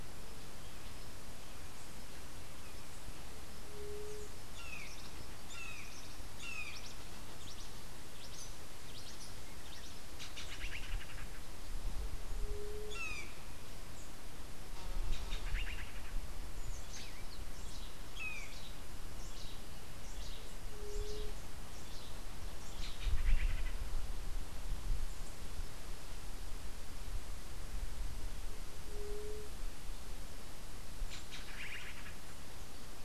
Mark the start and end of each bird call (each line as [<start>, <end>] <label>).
[4.45, 7.05] Brown Jay (Psilorhinus morio)
[7.35, 10.05] Cabanis's Wren (Cantorchilus modestus)
[10.05, 11.45] Black-headed Saltator (Saltator atriceps)
[12.35, 13.05] White-tipped Dove (Leptotila verreauxi)
[12.85, 13.45] Brown Jay (Psilorhinus morio)
[14.85, 16.15] Black-headed Saltator (Saltator atriceps)
[17.35, 22.45] Cabanis's Wren (Cantorchilus modestus)
[18.05, 18.65] Brown Jay (Psilorhinus morio)
[22.65, 23.85] Black-headed Saltator (Saltator atriceps)
[28.55, 29.75] White-tipped Dove (Leptotila verreauxi)
[30.95, 32.15] Black-headed Saltator (Saltator atriceps)